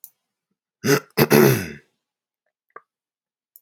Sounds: Throat clearing